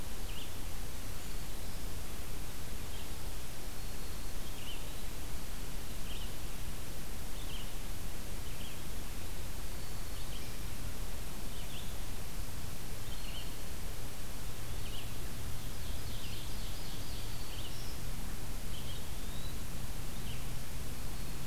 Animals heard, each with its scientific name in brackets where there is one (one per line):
Red-eyed Vireo (Vireo olivaceus)
Ovenbird (Seiurus aurocapilla)
Eastern Wood-Pewee (Contopus virens)
Black-throated Green Warbler (Setophaga virens)